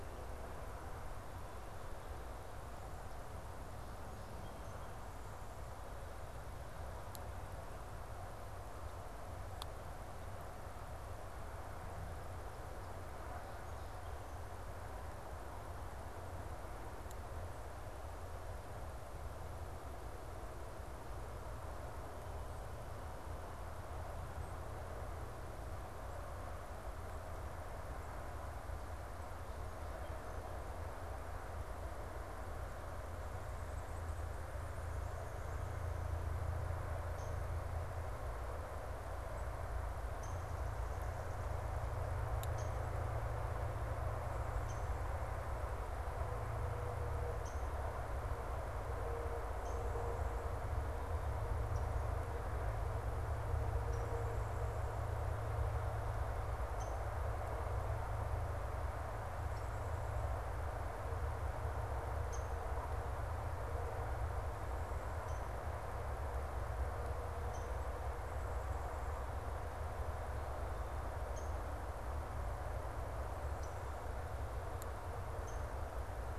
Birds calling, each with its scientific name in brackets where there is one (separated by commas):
Downy Woodpecker (Dryobates pubescens), Song Sparrow (Melospiza melodia)